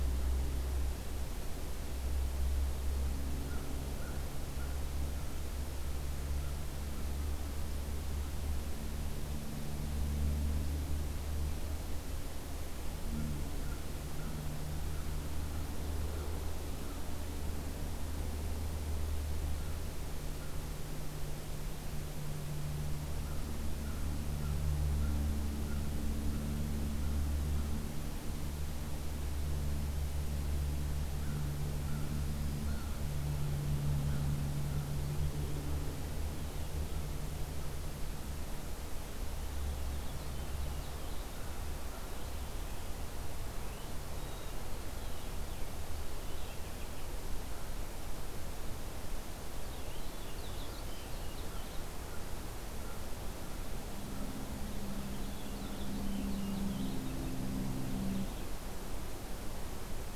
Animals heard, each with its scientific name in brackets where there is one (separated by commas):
American Crow (Corvus brachyrhynchos), Black-throated Green Warbler (Setophaga virens), Purple Finch (Haemorhous purpureus)